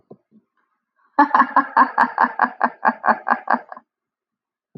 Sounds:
Laughter